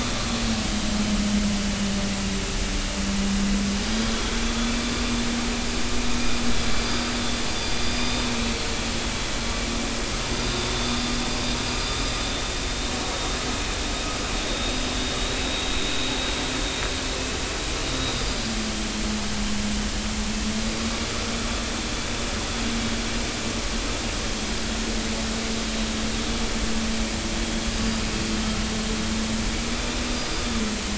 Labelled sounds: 4.1	4.8	vessel noise, 3.2 to 3.5 kHz
7.8	8.2	vessel noise, 4.8 to 5.0 kHz
10.4	11.0	vessel noise, 3.5 to 3.7 kHz
14.5	14.7	vessel noise, 3.6 to 3.9 kHz
15.4	15.7	vessel noise, 3.7 to 4.0 kHz
29.7	30.0	vessel noise, 3.4 to 3.6 kHz

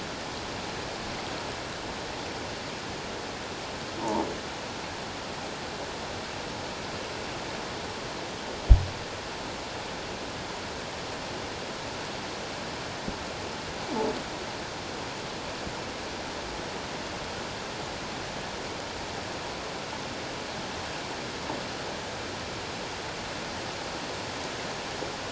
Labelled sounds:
4.0	4.3	croaking sound likely from a nearby submerged object, 0.78 to 1.1 kHz

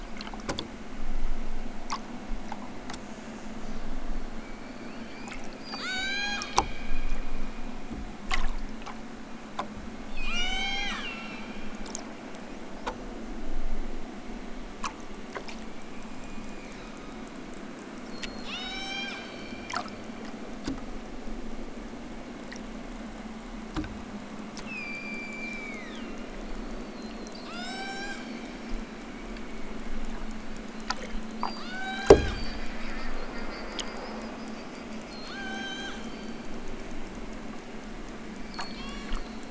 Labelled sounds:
5.6	6.8	killer whale, southern Alaska resident, 0.64 to 8.0 kHz
10.1	11.5	killer whale, southern Alaska resident, 0.23 to 8.0 kHz
15.5	17.3	killer whale, southern Alaska resident, 0.96 to 7.7 kHz
18.0	19.5	killer whale, southern Alaska resident, 0.60 to 8.0 kHz
24.6	28.9	killer whale, southern Alaska resident, 0.46 to 8.0 kHz
31.5	32.6	killer whale, southern Alaska resident, 0.46 to 8.0 kHz
35.0	36.2	killer whale, southern Alaska resident, 0.55 to 8.0 kHz
38.5	39.5	killer whale, southern Alaska resident, 0.69 to 8.0 kHz

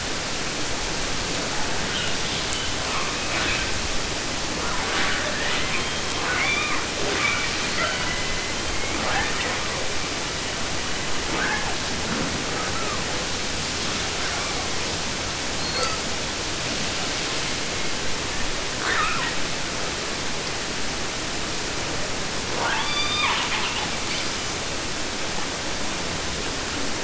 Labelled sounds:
1.4	3.8	killer whale, 0.48 to 3.9 kHz
4.5	6.2	killer whale, 0.09 to 8.0 kHz
6.2	7.0	killer whale, southern resident, J pod, call S44, 0.50 to 5.5 kHz
7.0	7.7	killer whale, 0.08 to 5.0 kHz
7.7	11.2	killer whale, southern resident, 0.09 to 5.1 kHz
11.3	13.0	killer whale, 0.01 to 3.7 kHz
13.9	15.0	killer whale, 0.14 to 5.8 kHz
15.5	16.1	killer whale, southern resident, J pod, call S42, 0.15 to 7.6 kHz
17.3	19.4	killer whale, 0.19 to 8.0 kHz
22.5	24.6	killer whale, southern resident, 0.17 to 6.9 kHz

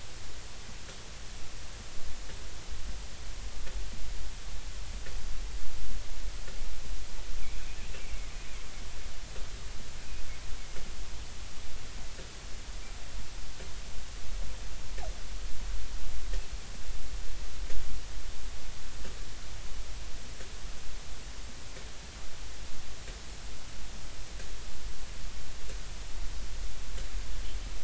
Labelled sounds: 7.4	7.7	killer whale, Bigg's (transient), 2.1 to 2.6 kHz

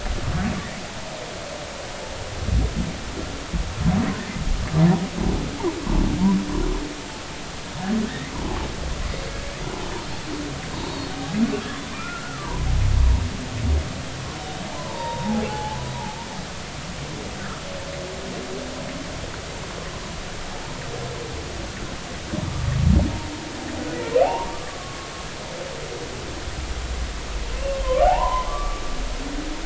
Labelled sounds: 8.1	8.3	humpback whale, 1.7 to 2.1 kHz
10.7	12.5	humpback whale, 0.86 to 4.5 kHz
14.7	15.8	humpback whale, 0.80 to 3.8 kHz
24.2	25.1	humpback whale, 0.80 to 1.2 kHz
27.8	28.8	humpback whale, 0.80 to 2.1 kHz

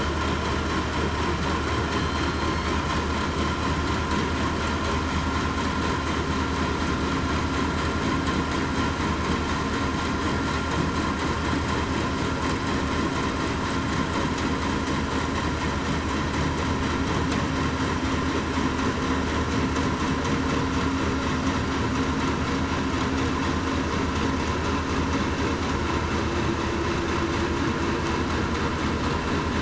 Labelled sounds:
1.9	2.7	killer whale, southern resident, 4.1 to 4.4 kHz

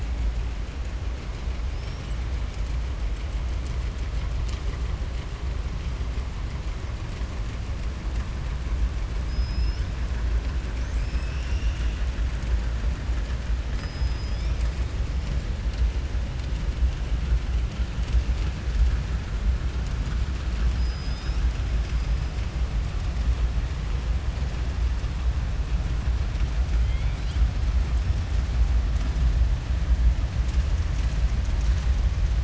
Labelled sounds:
9.2	9.9	killer whale, southern resident, 5.0 to 5.9 kHz
11.0	12.0	killer whale, southern resident, 1.9 to 3.7 kHz
13.7	14.7	killer whale, southern resident, 3.2 to 7.8 kHz
20.7	21.4	killer whale, southern resident, 3.5 to 5.8 kHz
26.7	27.4	killer whale, southern resident, 2.0 to 5.0 kHz

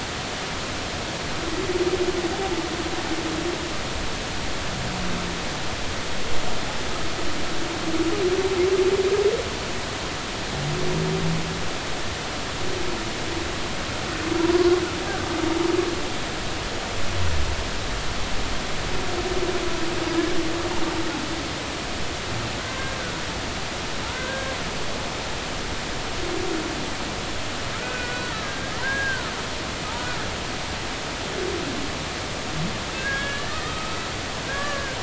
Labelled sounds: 22.6	23.0	humpback whale, 1.5 to 1.7 kHz
24.1	24.5	humpback whale, 1.3 to 1.7 kHz
27.7	29.3	humpback whale, 1.2 to 2.6 kHz
33.0	34.0	humpback whale, 1.2 to 2.4 kHz
34.5	35.0	humpback whale, 1.1 to 1.8 kHz

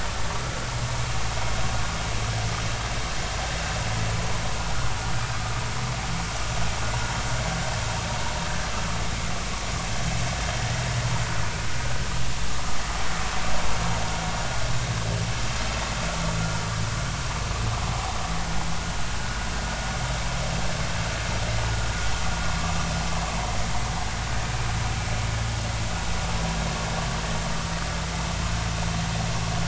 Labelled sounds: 17.9	18.2	vessel noise, 0.80 to 0.96 kHz

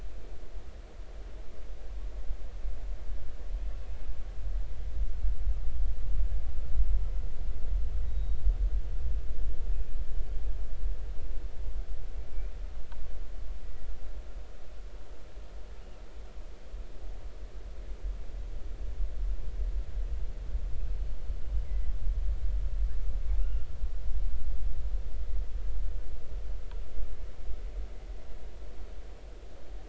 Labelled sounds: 8.1	8.4	killer whale, northern resident, 3.7 to 3.9 kHz
21.0	21.2	killer whale, northern resident, 4.4 to 4.5 kHz
21.6	21.9	killer whale, northern resident, 1.9 to 2.3 kHz
23.4	23.7	killer whale, northern resident, 1.2 to 2.9 kHz

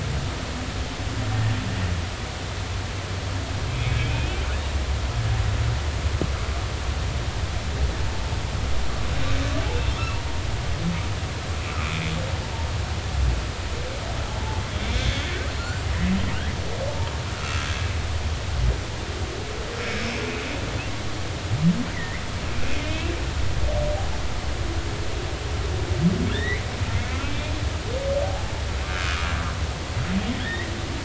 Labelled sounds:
4.0	5.0	humpback whale, 2.2 to 2.7 kHz
14.8	15.2	humpback whale, 3.2 to 3.7 kHz
17.4	17.7	humpback whale, 1.2 to 1.5 kHz
19.8	20.1	humpback whale, 5.3 to 5.4 kHz
21.9	22.2	humpback whale, 1.8 to 2.2 kHz
22.8	23.1	humpback whale, 2.4 to 2.8 kHz
26.3	27.5	humpback whale, 1.6 to 4.0 kHz
29.0	29.3	humpback whale, 1.1 to 1.5 kHz
30.4	30.7	humpback whale, 1.6 to 2.1 kHz

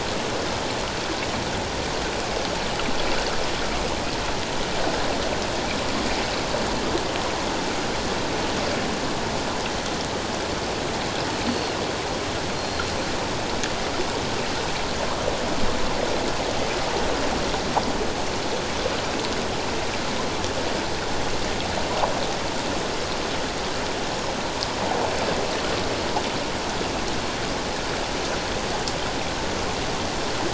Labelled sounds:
11.5	11.8	Pacific white-sided dolphin, 4.2 to 4.5 kHz
12.5	12.9	Pacific white-sided dolphin, 4.2 to 4.3 kHz

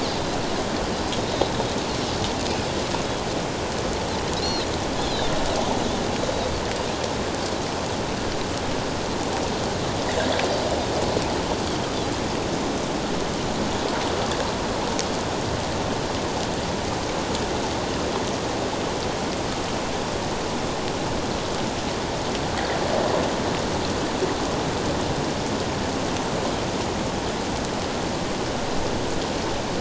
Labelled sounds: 0.0	0.3	Pacific white-sided dolphin, 3.9 to 4.3 kHz
4.4	5.3	Pacific white-sided dolphin, 3.0 to 4.4 kHz

